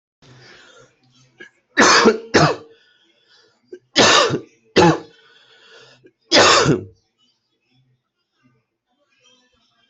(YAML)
expert_labels:
- quality: good
  cough_type: wet
  dyspnea: false
  wheezing: false
  stridor: false
  choking: false
  congestion: false
  nothing: true
  diagnosis: lower respiratory tract infection
  severity: mild
gender: female
respiratory_condition: false
fever_muscle_pain: false
status: COVID-19